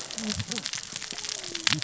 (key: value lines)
label: biophony, cascading saw
recorder: SoundTrap 600 or HydroMoth